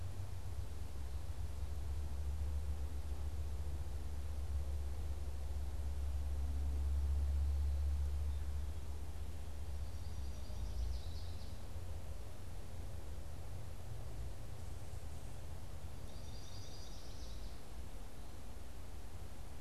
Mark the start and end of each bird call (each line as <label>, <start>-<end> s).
American Goldfinch (Spinus tristis), 9.6-11.8 s
American Goldfinch (Spinus tristis), 16.1-17.7 s